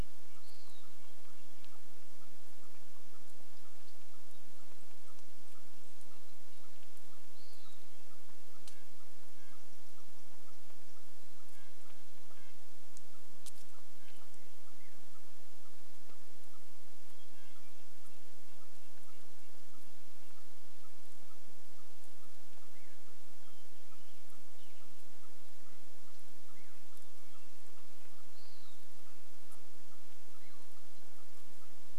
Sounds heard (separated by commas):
Hermit Thrush song, Western Wood-Pewee song, Red-breasted Nuthatch song, unidentified sound, chipmunk chirp